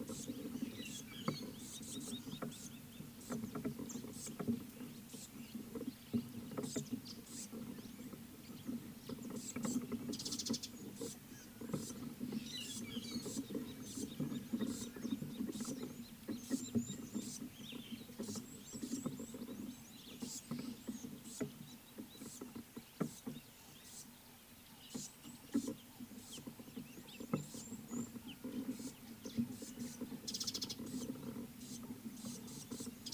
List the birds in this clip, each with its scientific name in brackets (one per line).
Red-cheeked Cordonbleu (Uraeginthus bengalus)
Gabar Goshawk (Micronisus gabar)
Mariqua Sunbird (Cinnyris mariquensis)